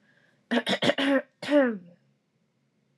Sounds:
Throat clearing